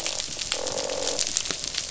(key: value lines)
label: biophony, croak
recorder: SoundTrap 500